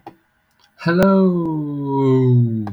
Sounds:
Cough